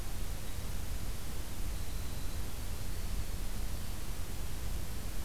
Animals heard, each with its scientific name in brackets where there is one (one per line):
Winter Wren (Troglodytes hiemalis)